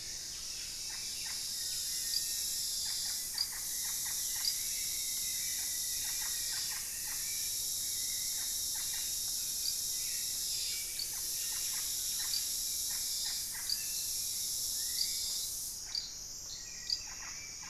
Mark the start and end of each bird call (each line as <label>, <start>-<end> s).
Hauxwell's Thrush (Turdus hauxwelli), 0.0-17.7 s
Russet-backed Oropendola (Psarocolius angustifrons), 0.0-17.7 s
Rufous-fronted Antthrush (Formicarius rufifrons), 2.3-7.9 s